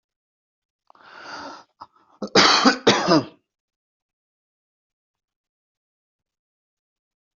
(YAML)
expert_labels:
- quality: ok
  cough_type: dry
  dyspnea: false
  wheezing: false
  stridor: false
  choking: false
  congestion: false
  nothing: true
  diagnosis: lower respiratory tract infection
  severity: mild
- quality: good
  cough_type: dry
  dyspnea: false
  wheezing: false
  stridor: false
  choking: false
  congestion: false
  nothing: true
  diagnosis: upper respiratory tract infection
  severity: mild
- quality: good
  cough_type: dry
  dyspnea: false
  wheezing: false
  stridor: false
  choking: false
  congestion: false
  nothing: true
  diagnosis: healthy cough
  severity: pseudocough/healthy cough
- quality: good
  cough_type: dry
  dyspnea: false
  wheezing: false
  stridor: false
  choking: false
  congestion: false
  nothing: true
  diagnosis: healthy cough
  severity: pseudocough/healthy cough
age: 35
gender: male
respiratory_condition: false
fever_muscle_pain: false
status: healthy